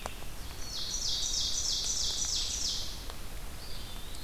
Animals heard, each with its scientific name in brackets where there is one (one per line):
Red-eyed Vireo (Vireo olivaceus)
Eastern Wood-Pewee (Contopus virens)
Black-capped Chickadee (Poecile atricapillus)
Ovenbird (Seiurus aurocapilla)